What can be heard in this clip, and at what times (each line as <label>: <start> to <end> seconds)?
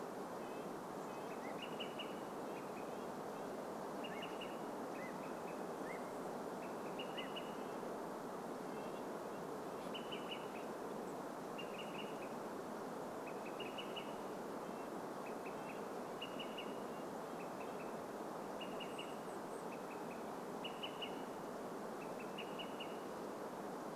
unidentified sound: 0 to 2 seconds
Red-breasted Nuthatch song: 0 to 4 seconds
Olive-sided Flycatcher call: 0 to 24 seconds
unidentified sound: 4 to 8 seconds
Red-breasted Nuthatch song: 6 to 10 seconds
unidentified bird chip note: 10 to 12 seconds
Red-breasted Nuthatch song: 14 to 18 seconds
Chestnut-backed Chickadee call: 18 to 20 seconds